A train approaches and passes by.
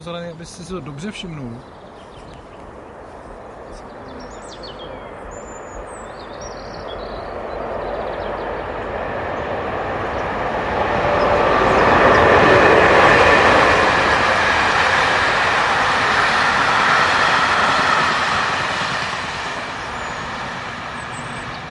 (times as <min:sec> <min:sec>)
0:06.3 0:21.7